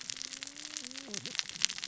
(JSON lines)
{"label": "biophony, cascading saw", "recorder": "SoundTrap 600 or HydroMoth"}